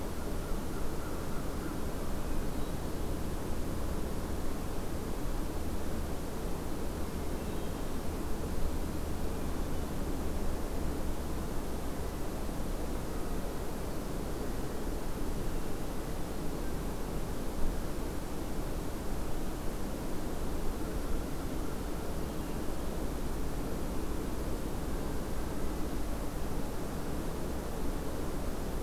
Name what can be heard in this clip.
American Crow, Hermit Thrush